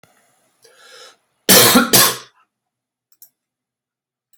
{"expert_labels": [{"quality": "good", "cough_type": "unknown", "dyspnea": false, "wheezing": false, "stridor": false, "choking": false, "congestion": false, "nothing": true, "diagnosis": "upper respiratory tract infection", "severity": "mild"}], "age": 29, "gender": "male", "respiratory_condition": true, "fever_muscle_pain": false, "status": "symptomatic"}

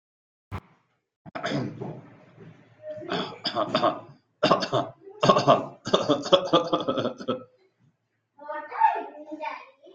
{"expert_labels": [{"quality": "ok", "cough_type": "unknown", "dyspnea": false, "wheezing": false, "stridor": false, "choking": false, "congestion": false, "nothing": true, "diagnosis": "healthy cough", "severity": "pseudocough/healthy cough"}, {"quality": "no cough present", "cough_type": "unknown", "dyspnea": false, "wheezing": false, "stridor": false, "choking": false, "congestion": false, "nothing": true, "diagnosis": "healthy cough", "severity": "pseudocough/healthy cough"}, {"quality": "good", "cough_type": "unknown", "dyspnea": false, "wheezing": false, "stridor": false, "choking": false, "congestion": false, "nothing": true, "diagnosis": "obstructive lung disease", "severity": "unknown"}, {"quality": "good", "cough_type": "dry", "dyspnea": false, "wheezing": false, "stridor": false, "choking": false, "congestion": false, "nothing": true, "diagnosis": "healthy cough", "severity": "pseudocough/healthy cough"}], "age": 42, "gender": "male", "respiratory_condition": false, "fever_muscle_pain": false, "status": "symptomatic"}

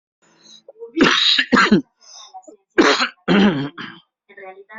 {"expert_labels": [{"quality": "good", "cough_type": "dry", "dyspnea": false, "wheezing": false, "stridor": true, "choking": false, "congestion": false, "nothing": false, "diagnosis": "obstructive lung disease", "severity": "mild"}], "age": 49, "gender": "female", "respiratory_condition": false, "fever_muscle_pain": false, "status": "symptomatic"}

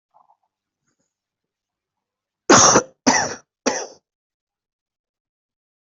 {"expert_labels": [{"quality": "good", "cough_type": "dry", "dyspnea": false, "wheezing": false, "stridor": false, "choking": false, "congestion": false, "nothing": true, "diagnosis": "upper respiratory tract infection", "severity": "mild"}], "age": 36, "gender": "female", "respiratory_condition": false, "fever_muscle_pain": false, "status": "COVID-19"}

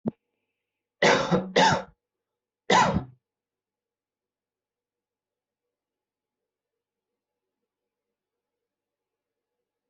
{"expert_labels": [{"quality": "good", "cough_type": "dry", "dyspnea": false, "wheezing": false, "stridor": false, "choking": false, "congestion": false, "nothing": true, "diagnosis": "COVID-19", "severity": "mild"}]}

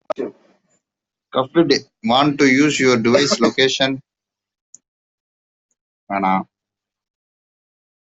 {"expert_labels": [{"quality": "poor", "cough_type": "unknown", "dyspnea": false, "wheezing": false, "stridor": false, "choking": false, "congestion": false, "nothing": true, "diagnosis": "healthy cough", "severity": "unknown"}]}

